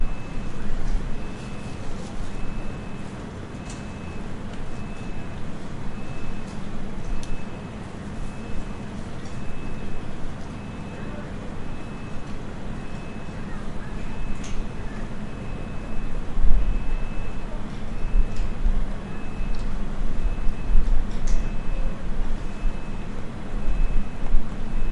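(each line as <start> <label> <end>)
0.0 Snow is falling in a suburban area. 24.9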